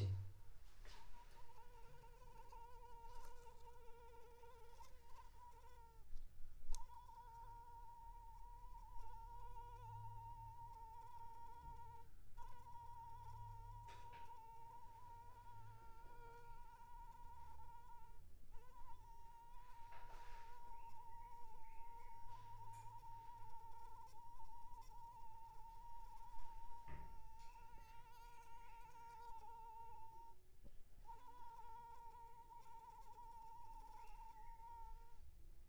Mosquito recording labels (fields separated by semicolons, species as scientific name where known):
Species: Anopheles arabiensis; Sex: female; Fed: unfed; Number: one; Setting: cup